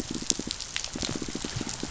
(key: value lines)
label: biophony, pulse
recorder: SoundTrap 500